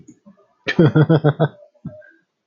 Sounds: Laughter